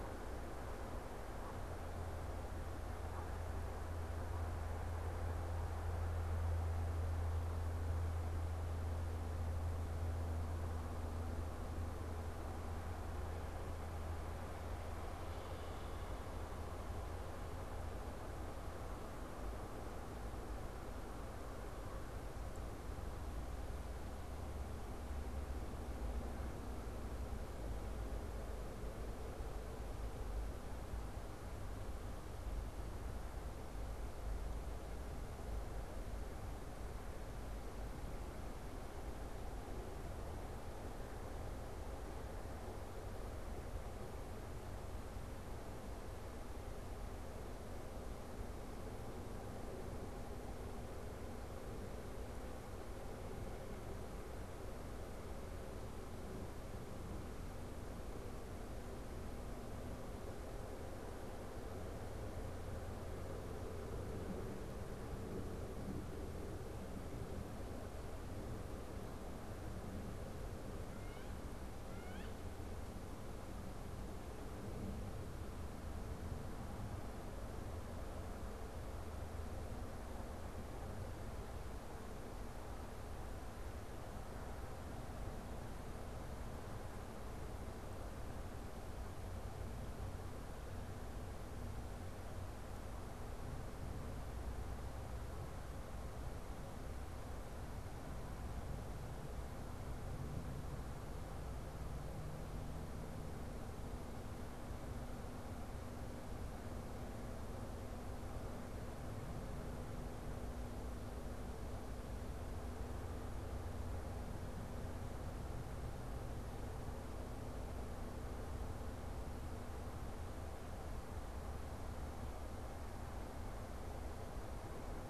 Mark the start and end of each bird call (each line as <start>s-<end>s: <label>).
0.0s-4.7s: Canada Goose (Branta canadensis)
70.5s-72.6s: Wood Duck (Aix sponsa)